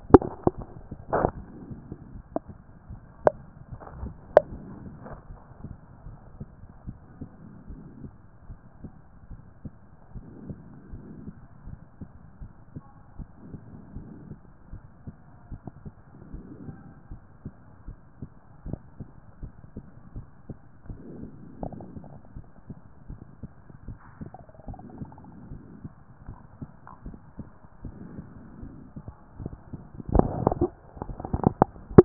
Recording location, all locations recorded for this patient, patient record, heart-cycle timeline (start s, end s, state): pulmonary valve (PV)
pulmonary valve (PV)+tricuspid valve (TV)
#Age: nan
#Sex: Female
#Height: nan
#Weight: nan
#Pregnancy status: True
#Murmur: Absent
#Murmur locations: nan
#Most audible location: nan
#Systolic murmur timing: nan
#Systolic murmur shape: nan
#Systolic murmur grading: nan
#Systolic murmur pitch: nan
#Systolic murmur quality: nan
#Diastolic murmur timing: nan
#Diastolic murmur shape: nan
#Diastolic murmur grading: nan
#Diastolic murmur pitch: nan
#Diastolic murmur quality: nan
#Outcome: Normal
#Campaign: 2014 screening campaign
0.00	6.06	unannotated
6.06	6.16	S1
6.16	6.38	systole
6.38	6.48	S2
6.48	6.86	diastole
6.86	6.98	S1
6.98	7.20	systole
7.20	7.28	S2
7.28	7.70	diastole
7.70	7.82	S1
7.82	8.00	systole
8.00	8.12	S2
8.12	8.48	diastole
8.48	8.58	S1
8.58	8.82	systole
8.82	8.92	S2
8.92	9.30	diastole
9.30	9.40	S1
9.40	9.64	systole
9.64	9.72	S2
9.72	10.14	diastole
10.14	10.26	S1
10.26	10.46	systole
10.46	10.58	S2
10.58	10.92	diastole
10.92	11.04	S1
11.04	11.24	systole
11.24	11.34	S2
11.34	11.66	diastole
11.66	11.78	S1
11.78	12.00	systole
12.00	12.10	S2
12.10	12.40	diastole
12.40	12.52	S1
12.52	12.74	systole
12.74	12.84	S2
12.84	13.18	diastole
13.18	13.28	S1
13.28	13.48	systole
13.48	13.60	S2
13.60	13.96	diastole
13.96	14.08	S1
14.08	14.28	systole
14.28	14.38	S2
14.38	14.72	diastole
14.72	14.82	S1
14.82	15.06	systole
15.06	15.16	S2
15.16	15.50	diastole
15.50	15.60	S1
15.60	15.84	systole
15.84	15.94	S2
15.94	16.32	diastole
16.32	16.44	S1
16.44	16.64	systole
16.64	16.76	S2
16.76	17.10	diastole
17.10	17.22	S1
17.22	17.44	systole
17.44	17.54	S2
17.54	17.86	diastole
17.86	17.98	S1
17.98	18.20	systole
18.20	18.30	S2
18.30	18.66	diastole
18.66	18.80	S1
18.80	18.98	systole
18.98	19.08	S2
19.08	19.42	diastole
19.42	19.52	S1
19.52	19.76	systole
19.76	19.84	S2
19.84	20.14	diastole
20.14	20.26	S1
20.26	20.48	systole
20.48	20.56	S2
20.56	20.88	diastole
20.88	21.00	S1
21.00	21.20	systole
21.20	21.30	S2
21.30	21.60	diastole
21.60	21.74	S1
21.74	21.94	systole
21.94	22.04	S2
22.04	22.36	diastole
22.36	22.46	S1
22.46	22.68	systole
22.68	22.78	S2
22.78	23.08	diastole
23.08	23.20	S1
23.20	23.42	systole
23.42	23.50	S2
23.50	23.86	diastole
23.86	23.98	S1
23.98	24.20	systole
24.20	24.30	S2
24.30	24.68	diastole
24.68	24.80	S1
24.80	24.98	systole
24.98	25.10	S2
25.10	25.50	diastole
25.50	25.62	S1
25.62	25.82	systole
25.82	25.92	S2
25.92	26.26	diastole
26.26	26.38	S1
26.38	26.60	systole
26.60	26.70	S2
26.70	27.06	diastole
27.06	27.18	S1
27.18	27.38	systole
27.38	27.48	S2
27.48	27.84	diastole
27.84	27.96	S1
27.96	28.16	systole
28.16	28.26	S2
28.26	28.60	diastole
28.60	28.74	S1
28.74	28.96	systole
28.96	29.04	S2
29.04	29.40	diastole
29.40	29.52	S1
29.52	29.72	systole
29.72	29.80	S2
29.80	30.12	diastole
30.12	32.05	unannotated